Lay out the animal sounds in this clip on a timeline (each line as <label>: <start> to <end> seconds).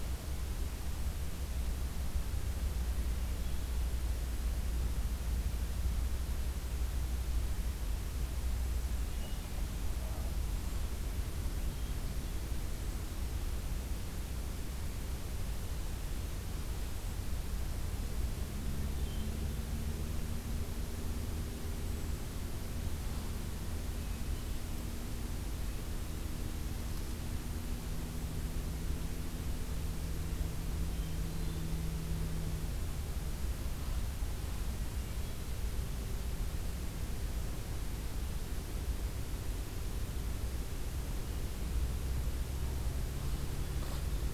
Hermit Thrush (Catharus guttatus): 8.9 to 9.8 seconds
Hermit Thrush (Catharus guttatus): 11.5 to 12.6 seconds
Hermit Thrush (Catharus guttatus): 18.9 to 20.0 seconds
Hermit Thrush (Catharus guttatus): 23.8 to 24.8 seconds
Hermit Thrush (Catharus guttatus): 30.7 to 31.8 seconds
Hermit Thrush (Catharus guttatus): 34.9 to 35.7 seconds